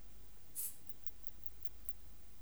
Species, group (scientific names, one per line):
Poecilimon propinquus
Orthoptera